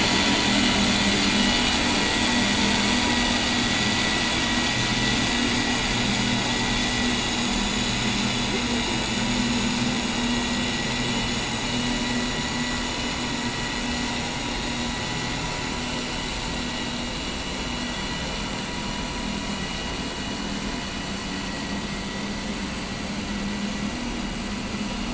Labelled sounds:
16.7	17.1	vessel noise, 2.8 to 2.9 kHz
18.0	18.4	vessel noise, 2.9 to 3.0 kHz

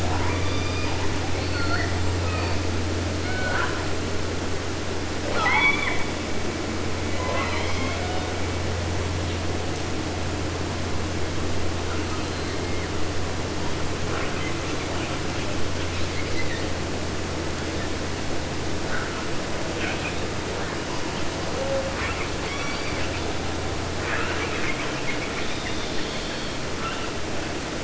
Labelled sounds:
0.0	1.2	killer whale, southern resident, 0.50 to 8.0 kHz
1.3	2.2	killer whale, southern resident, J pod, call S42, 0.50 to 8.0 kHz
2.1	2.8	killer whale, 0.55 to 5.2 kHz
3.1	3.9	killer whale, southern resident, J pod, call S14, 0.55 to 4.9 kHz
5.2	6.1	killer whale, southern resident, J pod, call S44, 0.50 to 8.0 kHz
6.9	8.4	killer whale, southern resident, J pod, call S01, 0.50 to 6.3 kHz
11.8	13.0	killer whale, 0.79 to 4.8 kHz
14.0	15.6	killer whale, southern resident, 0.50 to 4.3 kHz
15.9	16.8	killer whale, 0.50 to 6.7 kHz
19.7	22.3	killer whale, 0.25 to 6.8 kHz
22.4	23.4	killer whale, southern resident, J pod, call S44, 0.50 to 6.7 kHz
24.0	27.2	killer whale, 0.61 to 5.8 kHz

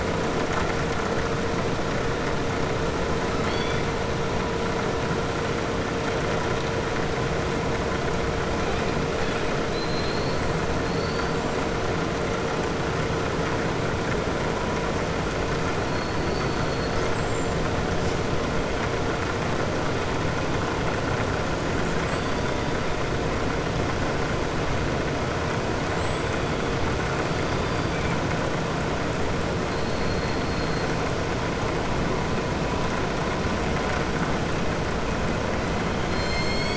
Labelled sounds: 3.3	3.8	killer whale, southern resident, 2.0 to 4.7 kHz
9.6	10.4	killer whale, southern resident, 3.7 to 5.3 kHz
10.8	11.3	killer whale, southern resident, 3.8 to 5.5 kHz
15.8	17.6	killer whale, southern resident, 3.9 to 8.0 kHz

